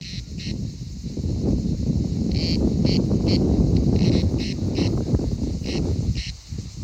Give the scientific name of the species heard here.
Cicada orni